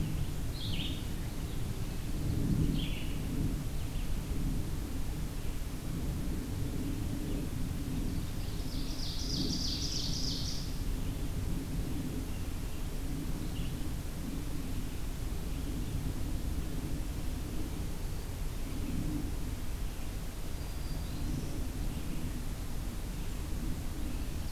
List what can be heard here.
Red-eyed Vireo, Ovenbird, Black-throated Green Warbler